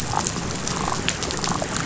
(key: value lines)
label: biophony
recorder: SoundTrap 500